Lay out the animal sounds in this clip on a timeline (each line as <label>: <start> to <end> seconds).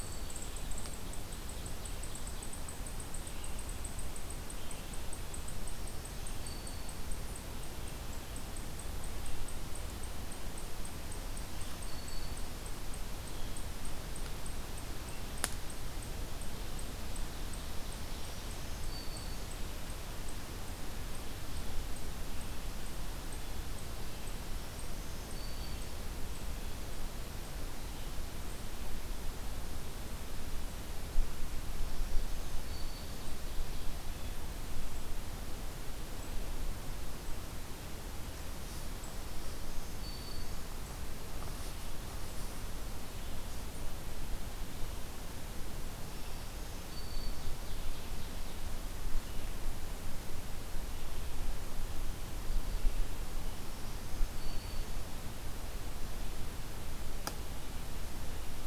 Black-throated Green Warbler (Setophaga virens): 0.0 to 0.6 seconds
unidentified call: 0.0 to 27.2 seconds
Ovenbird (Seiurus aurocapilla): 0.7 to 2.7 seconds
Black-throated Green Warbler (Setophaga virens): 5.5 to 7.1 seconds
Black-throated Green Warbler (Setophaga virens): 11.1 to 12.4 seconds
Black-throated Green Warbler (Setophaga virens): 18.0 to 19.6 seconds
Black-throated Green Warbler (Setophaga virens): 24.2 to 26.0 seconds
Black-throated Green Warbler (Setophaga virens): 31.6 to 33.5 seconds
Black-throated Green Warbler (Setophaga virens): 39.1 to 40.8 seconds
Black-throated Green Warbler (Setophaga virens): 45.9 to 47.6 seconds
Ovenbird (Seiurus aurocapilla): 46.6 to 48.7 seconds
Black-throated Green Warbler (Setophaga virens): 53.4 to 55.1 seconds